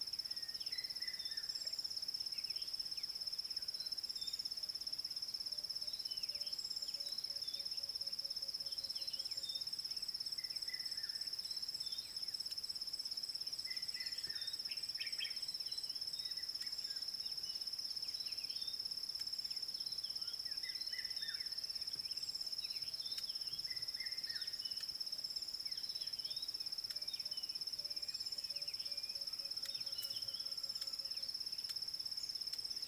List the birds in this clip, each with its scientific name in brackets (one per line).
Red-backed Scrub-Robin (Cercotrichas leucophrys)
Klaas's Cuckoo (Chrysococcyx klaas)
Red-chested Cuckoo (Cuculus solitarius)
Common Bulbul (Pycnonotus barbatus)